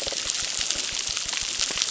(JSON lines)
{"label": "biophony, crackle", "recorder": "SoundTrap 600"}